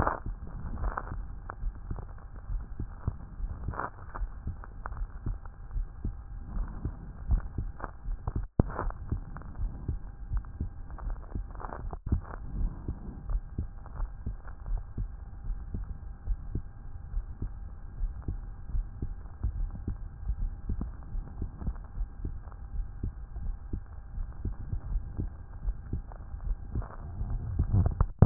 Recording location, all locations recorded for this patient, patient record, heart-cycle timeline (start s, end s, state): aortic valve (AV)
aortic valve (AV)+pulmonary valve (PV)+tricuspid valve (TV)+mitral valve (MV)
#Age: Child
#Sex: Male
#Height: 159.0 cm
#Weight: 38.2 kg
#Pregnancy status: False
#Murmur: Absent
#Murmur locations: nan
#Most audible location: nan
#Systolic murmur timing: nan
#Systolic murmur shape: nan
#Systolic murmur grading: nan
#Systolic murmur pitch: nan
#Systolic murmur quality: nan
#Diastolic murmur timing: nan
#Diastolic murmur shape: nan
#Diastolic murmur grading: nan
#Diastolic murmur pitch: nan
#Diastolic murmur quality: nan
#Outcome: Normal
#Campaign: 2014 screening campaign
0.00	8.70	unannotated
8.70	8.82	diastole
8.82	8.94	S1
8.94	9.10	systole
9.10	9.22	S2
9.22	9.60	diastole
9.60	9.72	S1
9.72	9.88	systole
9.88	10.00	S2
10.00	10.32	diastole
10.32	10.44	S1
10.44	10.60	systole
10.60	10.70	S2
10.70	11.04	diastole
11.04	11.18	S1
11.18	11.34	systole
11.34	11.46	S2
11.46	11.82	diastole
11.82	11.96	S1
11.96	12.10	systole
12.10	12.22	S2
12.22	12.56	diastole
12.56	12.70	S1
12.70	12.86	systole
12.86	12.96	S2
12.96	13.28	diastole
13.28	13.42	S1
13.42	13.58	systole
13.58	13.68	S2
13.68	13.98	diastole
13.98	14.10	S1
14.10	14.26	systole
14.26	14.36	S2
14.36	14.68	diastole
14.68	14.82	S1
14.82	14.98	systole
14.98	15.08	S2
15.08	15.48	diastole
15.48	15.58	S1
15.58	15.74	systole
15.74	15.86	S2
15.86	16.26	diastole
16.26	16.38	S1
16.38	16.54	systole
16.54	16.66	S2
16.66	17.14	diastole
17.14	17.26	S1
17.26	17.42	systole
17.42	17.52	S2
17.52	18.00	diastole
18.00	18.12	S1
18.12	18.28	systole
18.28	18.40	S2
18.40	18.74	diastole
18.74	18.86	S1
18.86	19.02	systole
19.02	19.10	S2
19.10	19.43	diastole
19.43	28.26	unannotated